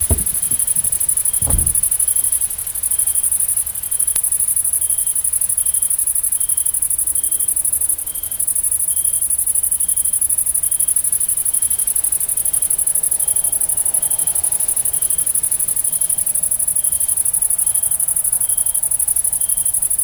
Are people singing?
no